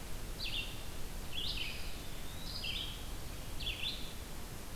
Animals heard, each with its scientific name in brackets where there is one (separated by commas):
Red-eyed Vireo (Vireo olivaceus), Eastern Wood-Pewee (Contopus virens)